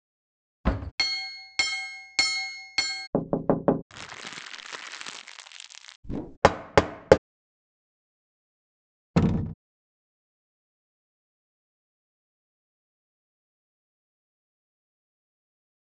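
At 0.64 seconds, a wooden cupboard closes. After that, at 0.98 seconds, glass chinks. Afterwards, at 3.13 seconds, knocking can be heard. Following that, at 3.88 seconds, there is quiet crackling. Later, at 6.03 seconds, you can hear faint whooshing. After that, at 6.42 seconds, knocking is heard. Finally, at 9.14 seconds, a door slams.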